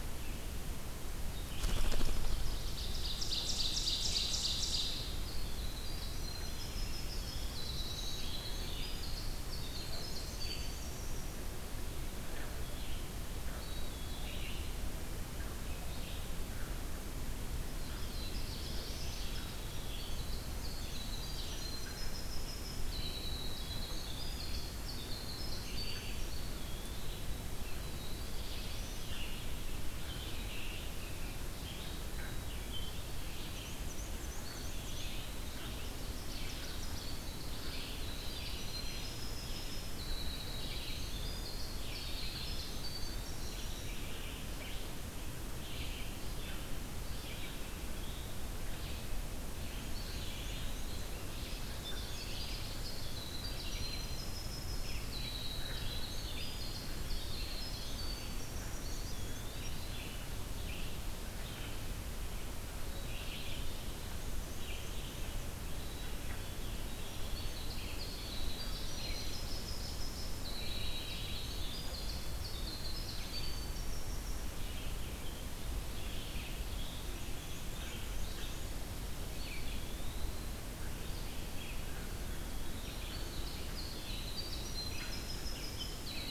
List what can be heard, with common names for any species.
Red-eyed Vireo, Ovenbird, Winter Wren, Black-throated Blue Warbler, Eastern Wood-Pewee, Black-capped Chickadee, Black-and-white Warbler